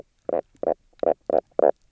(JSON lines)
{"label": "biophony, knock croak", "recorder": "SoundTrap 300"}